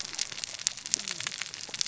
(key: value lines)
label: biophony, cascading saw
recorder: SoundTrap 600 or HydroMoth